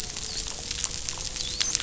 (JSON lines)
{"label": "biophony, dolphin", "recorder": "SoundTrap 500"}